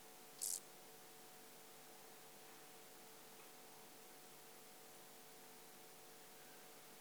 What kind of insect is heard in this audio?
orthopteran